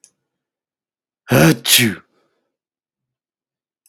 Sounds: Sneeze